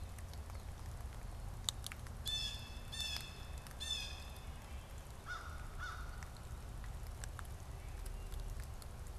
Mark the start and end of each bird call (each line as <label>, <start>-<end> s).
Blue Jay (Cyanocitta cristata), 2.2-4.5 s
American Crow (Corvus brachyrhynchos), 5.1-6.5 s